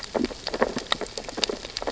{"label": "biophony, sea urchins (Echinidae)", "recorder": "SoundTrap 600 or HydroMoth"}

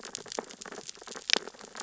{"label": "biophony, sea urchins (Echinidae)", "recorder": "SoundTrap 600 or HydroMoth"}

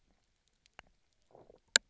{"label": "biophony, low growl", "recorder": "SoundTrap 300"}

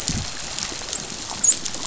{"label": "biophony, dolphin", "recorder": "SoundTrap 500"}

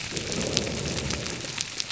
{"label": "biophony", "recorder": "SoundTrap 300"}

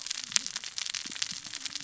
{"label": "biophony, cascading saw", "recorder": "SoundTrap 600 or HydroMoth"}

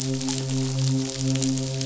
{"label": "biophony, midshipman", "recorder": "SoundTrap 500"}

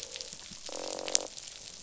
{"label": "biophony, croak", "recorder": "SoundTrap 500"}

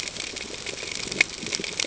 {"label": "ambient", "recorder": "HydroMoth"}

